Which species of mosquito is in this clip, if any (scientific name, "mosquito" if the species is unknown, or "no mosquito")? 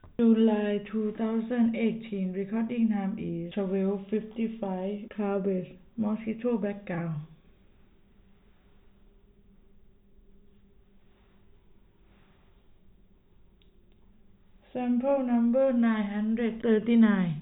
no mosquito